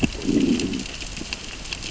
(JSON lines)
{"label": "biophony, growl", "recorder": "SoundTrap 600 or HydroMoth"}